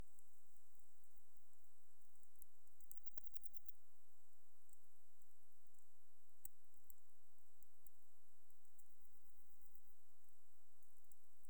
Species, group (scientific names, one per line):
Phaneroptera falcata
Orthoptera